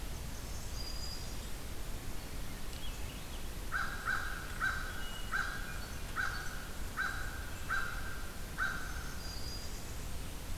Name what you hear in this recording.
Blackburnian Warbler, Black-throated Green Warbler, Swainson's Thrush, American Crow, Hermit Thrush